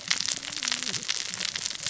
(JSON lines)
{"label": "biophony, cascading saw", "recorder": "SoundTrap 600 or HydroMoth"}